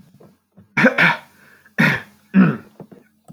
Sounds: Throat clearing